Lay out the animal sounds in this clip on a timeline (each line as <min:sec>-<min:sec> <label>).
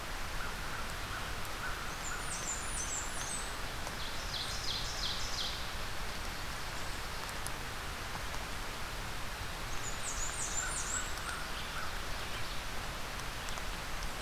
0:00.0-0:02.4 American Crow (Corvus brachyrhynchos)
0:01.7-0:03.5 Blackburnian Warbler (Setophaga fusca)
0:03.8-0:05.9 Ovenbird (Seiurus aurocapilla)
0:09.5-0:11.2 Blackburnian Warbler (Setophaga fusca)
0:10.2-0:12.1 American Crow (Corvus brachyrhynchos)